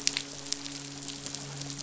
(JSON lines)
{"label": "biophony, midshipman", "recorder": "SoundTrap 500"}